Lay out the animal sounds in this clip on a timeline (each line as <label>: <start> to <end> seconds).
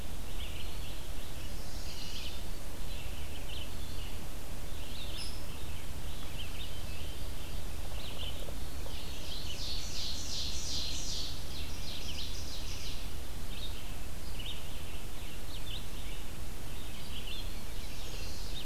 Red-eyed Vireo (Vireo olivaceus): 0.0 to 18.6 seconds
Eastern Wood-Pewee (Contopus virens): 0.0 to 1.0 seconds
Chestnut-sided Warbler (Setophaga pensylvanica): 1.2 to 2.5 seconds
Hairy Woodpecker (Dryobates villosus): 5.1 to 5.4 seconds
Ovenbird (Seiurus aurocapilla): 8.7 to 13.3 seconds
Chestnut-sided Warbler (Setophaga pensylvanica): 17.4 to 18.6 seconds